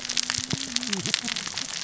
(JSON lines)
{"label": "biophony, cascading saw", "recorder": "SoundTrap 600 or HydroMoth"}